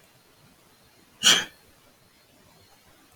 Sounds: Sneeze